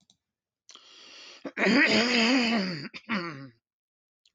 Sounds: Throat clearing